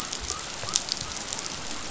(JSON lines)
{"label": "biophony", "recorder": "SoundTrap 500"}